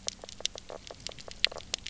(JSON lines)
{"label": "biophony, knock croak", "recorder": "SoundTrap 300"}